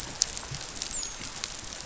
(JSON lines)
{"label": "biophony, dolphin", "recorder": "SoundTrap 500"}